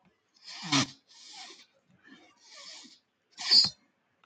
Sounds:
Sniff